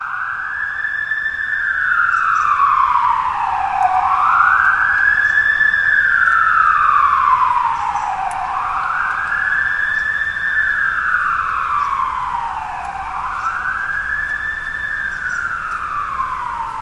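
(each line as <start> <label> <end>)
0.0 Sirens are wailing. 16.8
2.1 A bird chirping. 3.0
5.5 A bird chirping. 5.9
8.0 A bird chirping. 8.9
10.2 A bird chirping. 11.0
12.3 A bird chirping. 12.7
13.7 A bird chirping. 14.8
15.6 A bird chirping. 16.5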